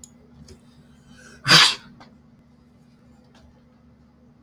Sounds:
Sneeze